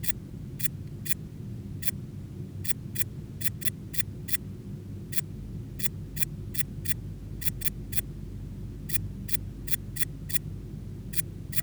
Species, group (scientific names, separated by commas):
Tessellana orina, Orthoptera